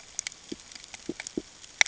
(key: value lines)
label: ambient
recorder: HydroMoth